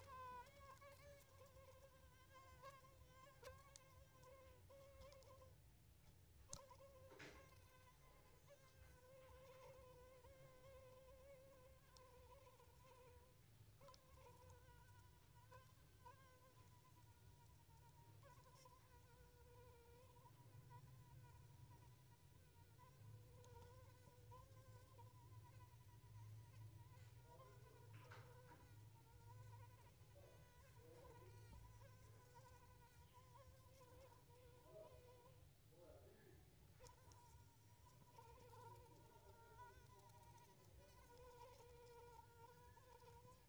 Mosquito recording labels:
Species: Anopheles arabiensis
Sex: female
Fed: unfed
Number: one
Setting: cup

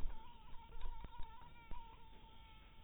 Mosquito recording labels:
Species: mosquito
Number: one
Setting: cup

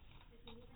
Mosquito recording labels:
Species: no mosquito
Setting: cup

